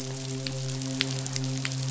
{"label": "biophony, midshipman", "recorder": "SoundTrap 500"}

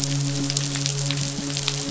{"label": "biophony, midshipman", "recorder": "SoundTrap 500"}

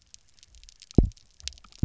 {"label": "biophony, double pulse", "recorder": "SoundTrap 300"}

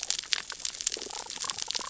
{"label": "biophony, damselfish", "recorder": "SoundTrap 600 or HydroMoth"}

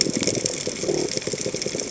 {"label": "biophony", "recorder": "HydroMoth"}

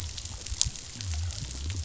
{"label": "biophony", "recorder": "SoundTrap 500"}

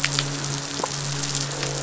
{"label": "biophony, croak", "recorder": "SoundTrap 500"}
{"label": "biophony, midshipman", "recorder": "SoundTrap 500"}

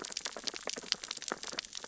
{"label": "biophony, sea urchins (Echinidae)", "recorder": "SoundTrap 600 or HydroMoth"}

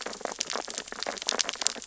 {"label": "biophony, sea urchins (Echinidae)", "recorder": "SoundTrap 600 or HydroMoth"}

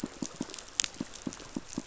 {"label": "biophony, pulse", "recorder": "SoundTrap 500"}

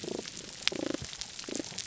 {"label": "biophony, damselfish", "recorder": "SoundTrap 300"}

